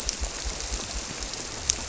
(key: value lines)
label: biophony
recorder: SoundTrap 300